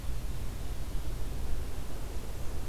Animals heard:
forest ambience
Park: Acadia National Park